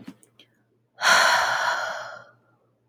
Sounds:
Sigh